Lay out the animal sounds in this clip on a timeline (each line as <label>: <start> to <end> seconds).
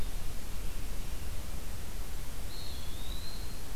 Eastern Wood-Pewee (Contopus virens): 2.3 to 3.8 seconds